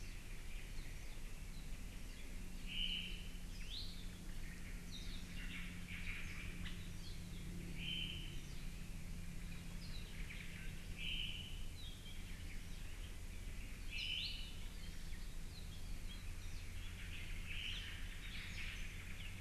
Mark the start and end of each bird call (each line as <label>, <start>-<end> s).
Apapane (Himatione sanguinea), 0.8-2.2 s
Apapane (Himatione sanguinea), 2.7-3.3 s
Iiwi (Drepanis coccinea), 3.5-3.8 s
Omao (Myadestes obscurus), 3.6-4.7 s
Apapane (Himatione sanguinea), 4.9-5.2 s
Omao (Myadestes obscurus), 5.4-6.6 s
Hawaii Elepaio (Chasiempis sandwichensis), 6.6-6.7 s
Apapane (Himatione sanguinea), 6.8-7.4 s
Omao (Myadestes obscurus), 7.8-8.4 s
Apapane (Himatione sanguinea), 9.8-10.1 s
Omao (Myadestes obscurus), 10.0-11.6 s
Apapane (Himatione sanguinea), 11.7-12.2 s
Omao (Myadestes obscurus), 12.0-14.5 s
Apapane (Himatione sanguinea), 14.0-14.1 s
Iiwi (Drepanis coccinea), 14.2-14.3 s
Apapane (Himatione sanguinea), 15.5-16.2 s
Omao (Myadestes obscurus), 16.8-19.4 s
Apapane (Himatione sanguinea), 17.7-17.8 s
Warbling White-eye (Zosterops japonicus), 18.0-19.0 s
Apapane (Himatione sanguinea), 19.2-19.3 s